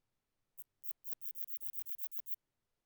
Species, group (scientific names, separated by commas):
Phaneroptera falcata, Orthoptera